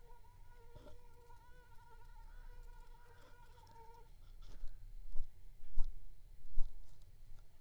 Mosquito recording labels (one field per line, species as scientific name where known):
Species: Anopheles gambiae s.l.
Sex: female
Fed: unfed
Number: one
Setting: cup